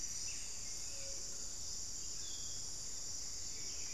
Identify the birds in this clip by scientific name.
Geotrygon montana, Saltator maximus, unidentified bird